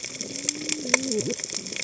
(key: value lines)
label: biophony, cascading saw
recorder: HydroMoth